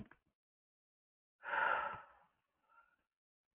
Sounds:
Sigh